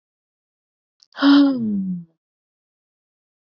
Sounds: Sigh